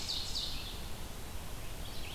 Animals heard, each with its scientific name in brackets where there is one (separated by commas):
Ovenbird (Seiurus aurocapilla), American Robin (Turdus migratorius)